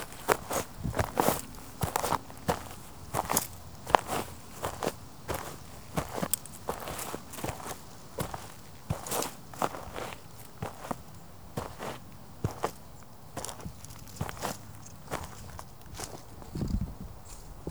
Frequently performing this activity can improve what aspect of a person?
unknown